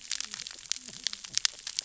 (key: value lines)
label: biophony, cascading saw
recorder: SoundTrap 600 or HydroMoth